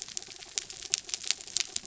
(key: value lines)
label: anthrophony, mechanical
recorder: SoundTrap 300